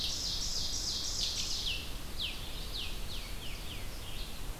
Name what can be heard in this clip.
Ovenbird, Red-eyed Vireo, unidentified call